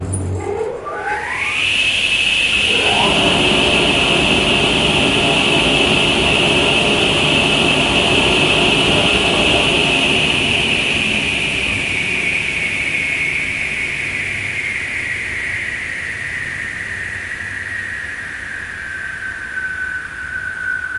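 The initial sound of a tool starting to work. 0:00.0 - 0:00.8
A worktool emits a steady mechanical cutting sound with a vacuum-like whoosh from the airflow. 0:00.9 - 0:21.0

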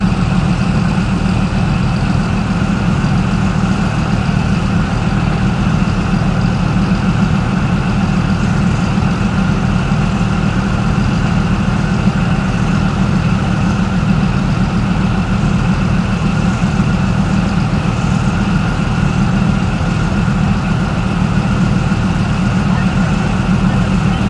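The engines of military equipment are running continuously. 0:00.0 - 0:24.3

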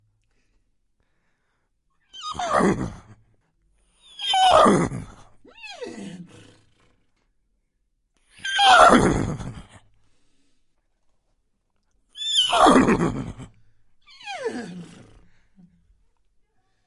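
A horse is nickering. 0:02.1 - 0:02.9
A horse neighs. 0:04.1 - 0:05.0
A horse is nickering. 0:05.6 - 0:06.3
A horse neighs. 0:08.4 - 0:09.7
A horse neighs. 0:12.2 - 0:13.5
A horse is nickering. 0:14.2 - 0:14.9
Someone is speaking in the distance. 0:15.9 - 0:16.9

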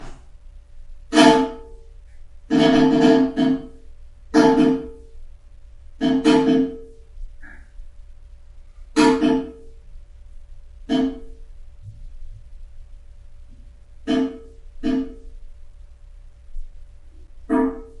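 Small raindrops hitting the floor. 0:00.0 - 0:00.8
A large raindrop falls on a metallic surface. 0:00.9 - 0:01.7
A large raindrop falls on a metallic surface. 0:02.4 - 0:07.0
Small raindrops falling on the floor. 0:07.2 - 0:08.6
A large raindrop falls on a metallic surface. 0:08.9 - 0:09.6
A small drop of rain falls on a metal surface. 0:10.6 - 0:13.3
A small drop of rain falls on a metal surface. 0:14.0 - 0:17.9

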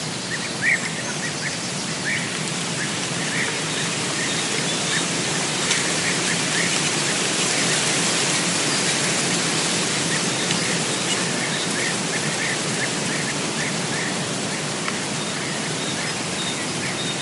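Wind rustling through tree leaves, creating a harsh sound, accompanied by distant, arrhythmic bird calls and chirps. 0:00.0 - 0:17.2

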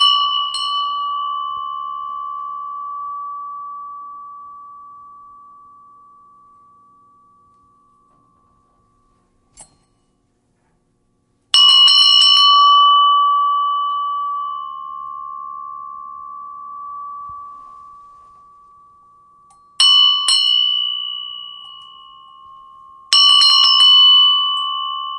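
A metallic bell rings several times, fading out slowly. 0:00.0 - 0:09.3
Metallic clink. 0:09.5 - 0:09.7
A metallic bell rings several times, fading out slowly. 0:11.5 - 0:23.2
A metallic bell rings several times, fading out. 0:23.1 - 0:25.2

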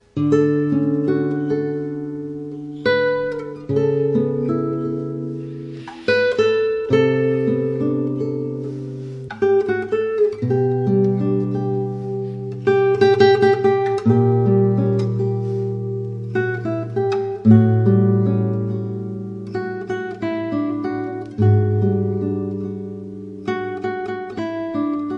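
A classical guitar plays a slow and melancholic melody. 0:00.0 - 0:25.2

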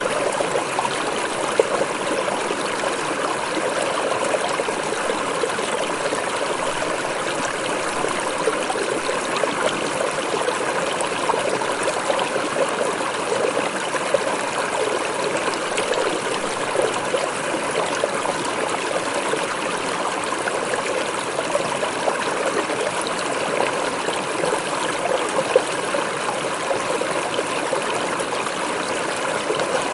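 Water babbling as it flows. 0:00.0 - 0:29.9

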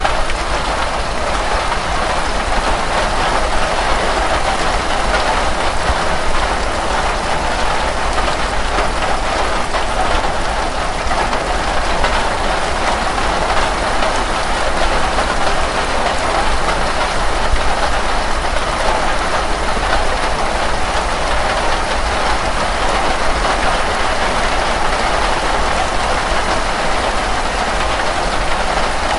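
Rain falling steadily outside a cabin. 0:00.0 - 0:29.2

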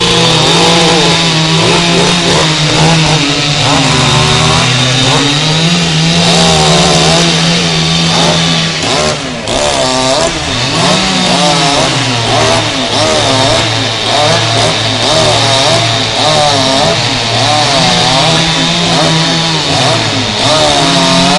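A chainsaw sounds loudly and continuously. 0:00.0 - 0:21.4

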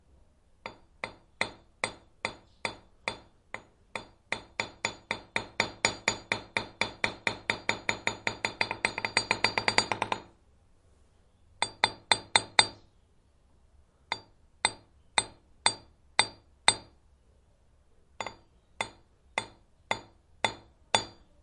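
A hammer hitting a hard surface. 0:00.6 - 0:04.1
Hammer strikes a hard surface multiple times with increasing speed. 0:04.3 - 0:10.2
Hammer striking a hard surface multiple times with increasing intensity and short delays. 0:11.5 - 0:12.8
Hammer hitting a hard surface multiple times with increasing intensity and medium delay. 0:14.1 - 0:16.8
Hammer hitting a hard surface multiple times with increasing intensity and long delays. 0:18.1 - 0:21.1

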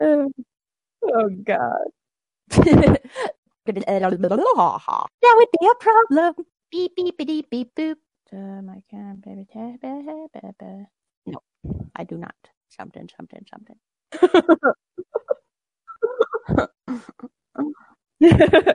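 A woman giggles and speaks directly into a microphone. 0:00.0 - 0:18.7

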